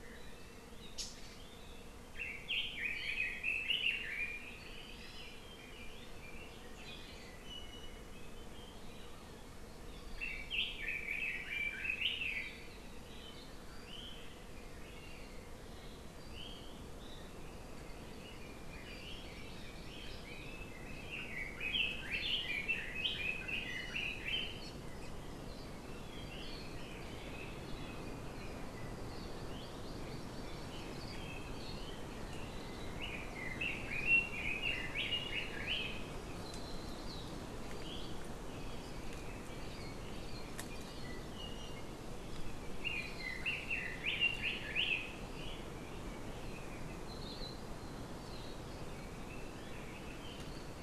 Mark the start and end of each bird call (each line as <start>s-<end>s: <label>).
2.1s-4.4s: Red-billed Leiothrix (Leiothrix lutea)
7.4s-8.1s: Apapane (Himatione sanguinea)
9.4s-10.8s: Hawaii Amakihi (Chlorodrepanis virens)
10.2s-12.6s: Red-billed Leiothrix (Leiothrix lutea)
17.4s-18.2s: Apapane (Himatione sanguinea)
18.2s-24.7s: Red-billed Leiothrix (Leiothrix lutea)
19.0s-20.2s: Hawaii Amakihi (Chlorodrepanis virens)
25.8s-28.6s: Red-billed Leiothrix (Leiothrix lutea)
29.3s-30.9s: Hawaii Amakihi (Chlorodrepanis virens)
33.0s-36.1s: Red-billed Leiothrix (Leiothrix lutea)
36.1s-37.4s: Hawaii Amakihi (Chlorodrepanis virens)
41.3s-41.9s: Apapane (Himatione sanguinea)
42.8s-45.2s: Red-billed Leiothrix (Leiothrix lutea)
48.8s-50.5s: Red-billed Leiothrix (Leiothrix lutea)